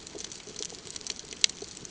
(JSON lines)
{"label": "ambient", "recorder": "HydroMoth"}